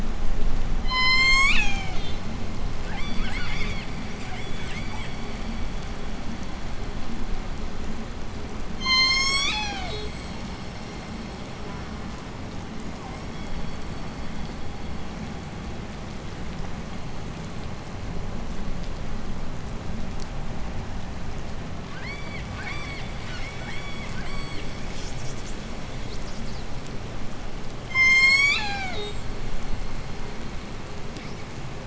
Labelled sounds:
0.7	2.4	killer whale, southern resident, J pod, call S01, 0.59 to 8.0 kHz
2.7	6.1	killer whale, southern resident, J pod, 0.57 to 8.0 kHz
8.5	10.2	killer whale, southern resident, J pod, call S01, 0.24 to 8.0 kHz
11.6	12.5	killer whale, southern resident, J pod, call S04, 0.52 to 2.5 kHz
12.8	13.4	killer whale, southern resident, J pod, 0.44 to 2.4 kHz
21.5	27.5	killer whale, southern resident, J pod, 0.78 to 8.0 kHz
27.8	29.4	killer whale, southern resident, J pod, call S01, 0.30 to 8.0 kHz

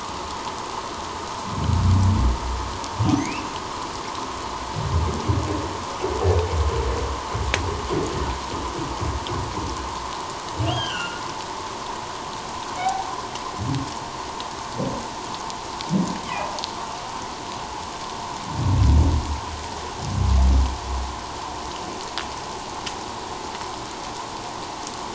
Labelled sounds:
3.2	3.5	humpback whale, 1.8 to 2.9 kHz
10.6	11.2	humpback whale, 1.3 to 3.3 kHz
12.8	13.2	humpback whale, 0.78 to 0.88 kHz

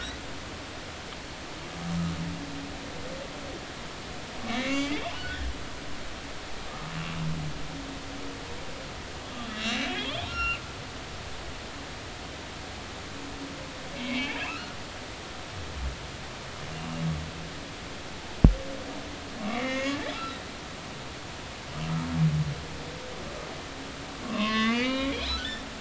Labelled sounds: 4.4	5.5	humpback whale, 1.4 to 2.9 kHz
6.7	6.9	humpback whale, 1.2 to 1.3 kHz
9.5	10.6	humpback whale, 1.2 to 5.6 kHz
13.9	14.8	humpback whale, 1.2 to 2.4 kHz
19.4	20.1	humpback whale, 1.0 to 6.8 kHz
24.2	25.1	humpback whale, 0.99 to 6.5 kHz

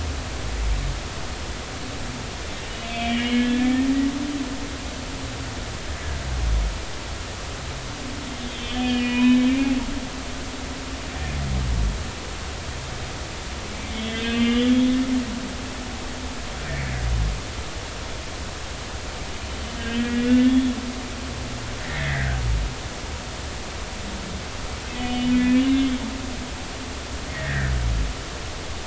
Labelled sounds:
2.7	3.7	humpback whale, 1.7 to 3.6 kHz
8.4	9.4	humpback whale, 0.93 to 4.5 kHz
13.9	14.9	humpback whale, 1.5 to 3.5 kHz
19.9	20.7	humpback whale, 1.7 to 3.6 kHz
21.8	22.4	humpback whale, 1.4 to 2.2 kHz
25.0	25.9	humpback whale, 1.7 to 3.0 kHz
27.3	27.7	humpback whale, 1.4 to 2.0 kHz

